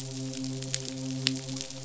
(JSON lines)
{"label": "biophony, midshipman", "recorder": "SoundTrap 500"}